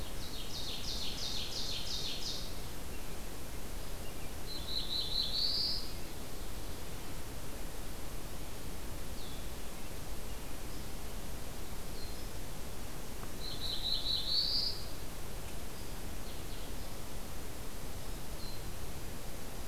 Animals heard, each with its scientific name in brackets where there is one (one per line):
Ovenbird (Seiurus aurocapilla)
Black-throated Blue Warbler (Setophaga caerulescens)